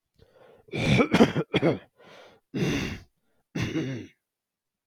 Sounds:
Throat clearing